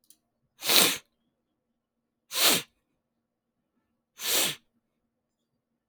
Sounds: Sniff